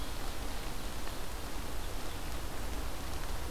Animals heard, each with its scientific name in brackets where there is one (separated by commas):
Ovenbird (Seiurus aurocapilla)